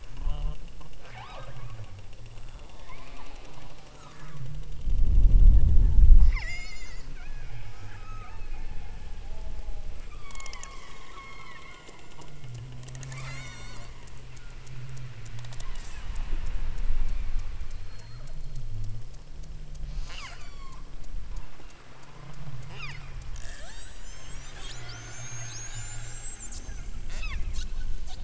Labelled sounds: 1.0	1.9	killer whale, southern Alaska resident, 0.34 to 8.0 kHz
2.5	3.9	killer whale, southern Alaska resident, 0.18 to 5.2 kHz
6.1	8.8	killer whale, southern Alaska resident, 0.46 to 8.0 kHz
10.0	11.8	killer whale, southern Alaska resident, 0.87 to 5.5 kHz
13.1	13.9	killer whale, southern Alaska resident, 0.91 to 8.0 kHz
15.6	16.2	killer whale, southern Alaska resident, 0.75 to 3.3 kHz
19.8	20.8	killer whale, southern Alaska resident, 0.34 to 8.0 kHz
22.7	23.1	killer whale, southern Alaska resident, 0.32 to 7.0 kHz
23.3	24.6	killer whale, southern Alaska resident, 0.32 to 8.0 kHz
27.0	27.5	killer whale, southern Alaska resident, 0.71 to 5.7 kHz

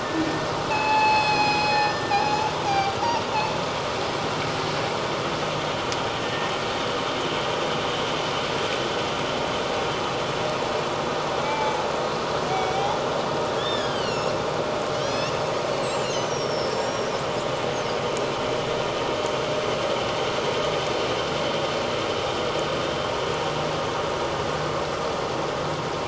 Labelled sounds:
0.0	2.2	killer whale, northern resident, 0.78 to 6.0 kHz
2.7	3.0	killer whale, northern resident, 0.78 to 4.9 kHz
6.2	6.5	killer whale, northern resident, 1.8 to 1.9 kHz
11.4	11.8	killer whale, northern resident, 0.84 to 2.4 kHz
12.5	14.3	killer whale, northern resident, 1.4 to 7.1 kHz
14.9	15.3	killer whale, northern resident, 2.5 to 6.6 kHz
15.8	17.1	killer whale, northern resident, 5.1 to 8.0 kHz

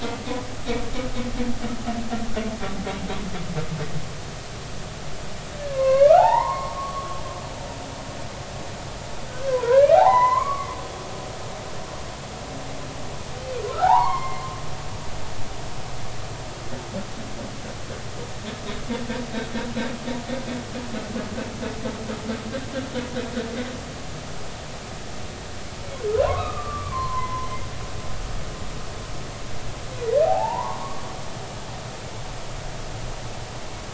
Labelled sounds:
5.7	7.1	humpback whale, 0.80 to 4.4 kHz
9.3	10.8	humpback whale, 0.80 to 2.3 kHz
13.8	14.4	humpback whale, 0.80 to 4.4 kHz
26.2	27.5	humpback whale, 0.96 to 1.3 kHz
30.3	31.0	humpback whale, 0.80 to 1.2 kHz

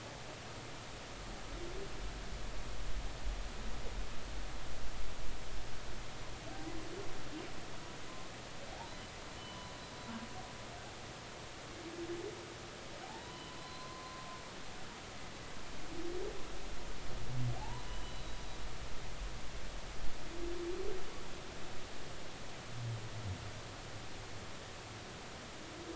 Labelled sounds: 9.4	9.7	humpback whale, 0.96 to 3.1 kHz
13.0	14.3	humpback whale, 0.80 to 4.1 kHz
17.6	18.4	humpback whale, 0.80 to 4.0 kHz

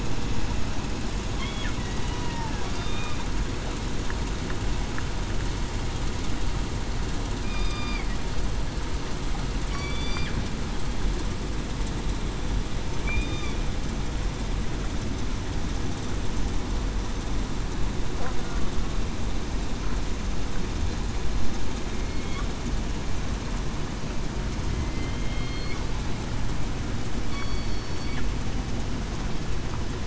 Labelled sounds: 2.7	3.1	killer whale, southern resident, 3.6 to 3.8 kHz
7.4	8.0	killer whale, southern resident, 1.1 to 5.0 kHz
9.7	10.3	killer whale, southern resident, 2.2 to 4.8 kHz
13.1	13.5	killer whale, southern resident, 3.4 to 3.7 kHz
21.9	22.4	killer whale, southern resident, 2.1 to 2.3 kHz
24.7	25.8	killer whale, southern resident, 2.0 to 4.4 kHz
27.3	27.7	killer whale, southern resident, 3.3 to 4.5 kHz

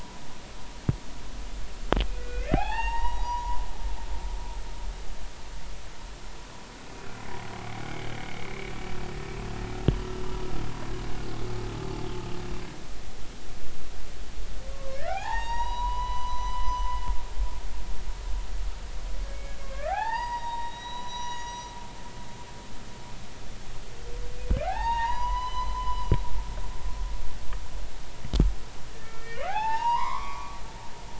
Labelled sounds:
2.1	4.0	humpback whale, 0.80 to 6.6 kHz
7.8	8.5	humpback whale, 2.0 to 2.4 kHz
14.7	16.8	humpback whale, 0.80 to 6.7 kHz
19.3	21.7	humpback whale, 0.80 to 6.8 kHz
24.6	26.8	humpback whale, 0.80 to 6.7 kHz
28.9	30.6	humpback whale, 0.80 to 5.5 kHz

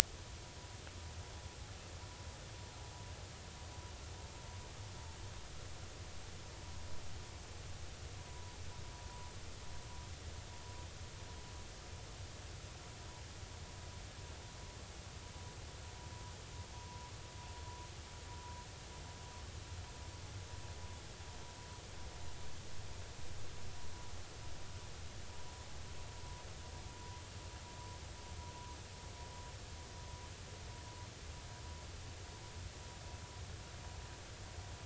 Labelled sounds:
8.2	8.5	vessel noise, 0.93 to 1.1 kHz
16.7	17.1	vessel noise, 0.93 to 1.1 kHz
27.0	27.2	vessel noise, 0.93 to 1.0 kHz

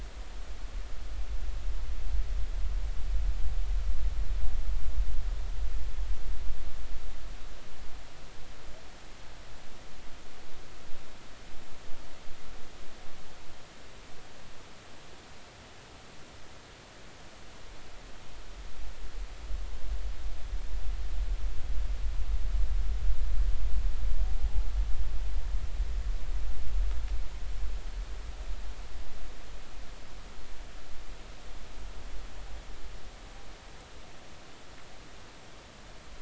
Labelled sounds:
24.3	24.7	humpback whale, 0.80 to 0.90 kHz

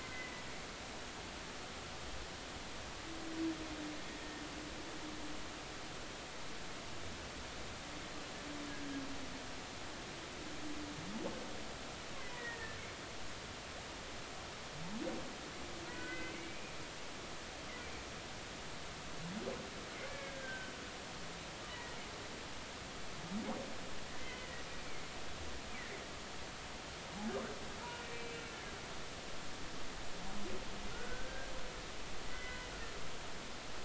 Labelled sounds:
0.0	0.4	humpback whale, 1.5 to 2.1 kHz
12.2	12.8	humpback whale, 1.7 to 2.2 kHz
15.9	16.6	humpback whale, 1.4 to 2.4 kHz
20.1	20.7	humpback whale, 1.5 to 2.4 kHz
21.7	22.0	humpback whale, 1.8 to 2.0 kHz
24.1	24.5	humpback whale, 1.9 to 2.1 kHz
24.8	25.0	humpback whale, 2.1 to 2.4 kHz
28.0	28.4	humpback whale, 2.3 to 2.4 kHz
30.9	31.5	humpback whale, 1.3 to 1.7 kHz
32.3	32.7	humpback whale, 1.9 to 3.0 kHz

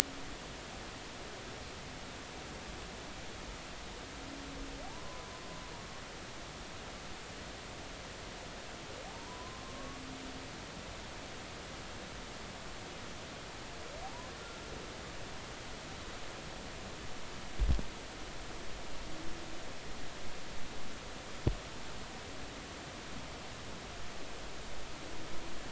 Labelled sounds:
4.8	5.3	humpback whale, 0.80 to 1.1 kHz
9.1	10.0	humpback whale, 0.80 to 1.2 kHz
14.0	14.3	humpback whale, 0.80 to 1.1 kHz

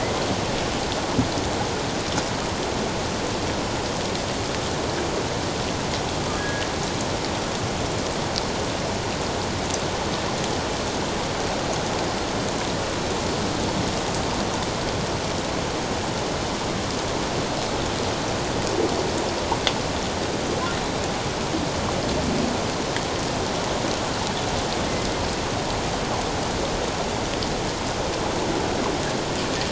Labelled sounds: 6.3	6.7	humpback whale, 1.6 to 1.7 kHz

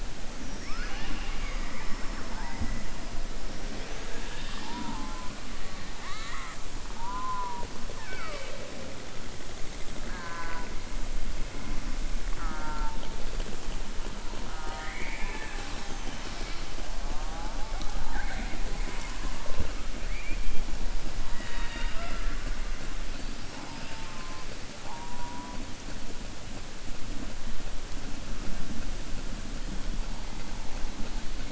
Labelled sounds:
5.9	6.6	killer whale, southern resident, 1.1 to 4.7 kHz
7.9	8.7	killer whale, southern resident, 0.43 to 5.3 kHz
10.0	10.7	killer whale, southern resident, 0.69 to 2.7 kHz
14.4	16.1	killer whale, southern resident, 0.42 to 6.4 kHz

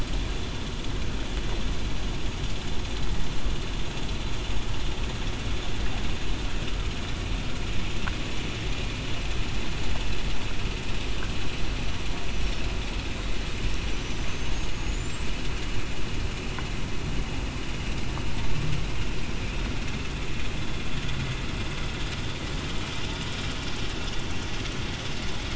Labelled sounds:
14.5	15.0	killer whale, southern resident, 6.5 to 6.9 kHz

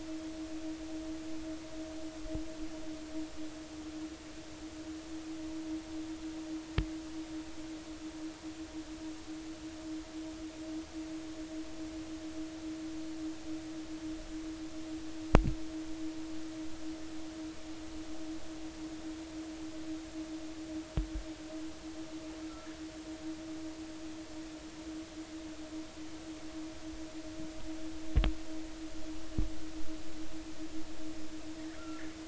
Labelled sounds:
31.8	32.0	killer whale, northern resident, 1.3 to 1.4 kHz

